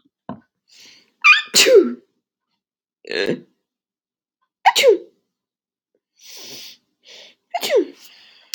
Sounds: Sneeze